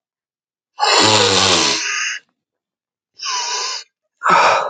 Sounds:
Sniff